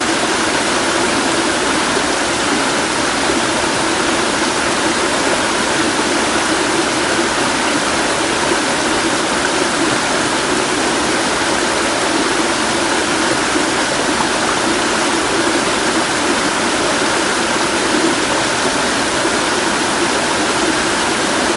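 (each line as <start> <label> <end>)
0.1 Water babbling in a brook. 21.6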